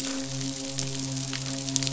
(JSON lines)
{"label": "biophony, midshipman", "recorder": "SoundTrap 500"}